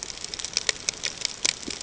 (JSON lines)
{"label": "ambient", "recorder": "HydroMoth"}